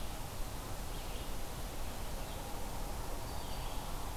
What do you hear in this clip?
Red-eyed Vireo, Black-throated Green Warbler